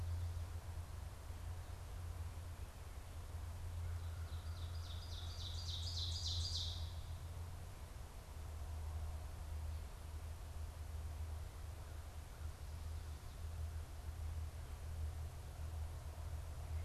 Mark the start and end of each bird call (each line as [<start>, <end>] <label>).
[3.90, 7.30] Ovenbird (Seiurus aurocapilla)